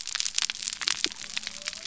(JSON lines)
{"label": "biophony", "recorder": "SoundTrap 300"}